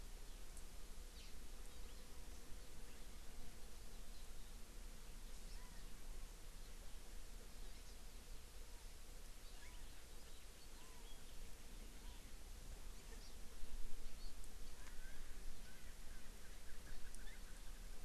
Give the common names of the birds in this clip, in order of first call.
Hawaii Amakihi, Chinese Hwamei, Erckel's Francolin